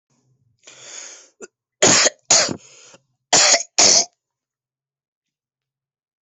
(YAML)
expert_labels:
- quality: good
  cough_type: wet
  dyspnea: false
  wheezing: false
  stridor: false
  choking: false
  congestion: false
  nothing: true
  diagnosis: upper respiratory tract infection
  severity: mild
age: 25
gender: male
respiratory_condition: false
fever_muscle_pain: false
status: COVID-19